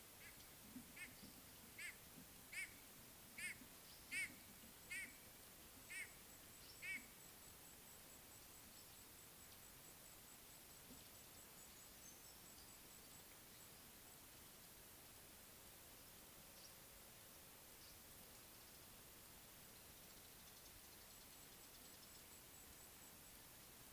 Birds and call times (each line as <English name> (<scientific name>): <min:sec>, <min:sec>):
White-bellied Go-away-bird (Corythaixoides leucogaster): 0:03.5